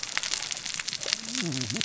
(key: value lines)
label: biophony, cascading saw
recorder: SoundTrap 600 or HydroMoth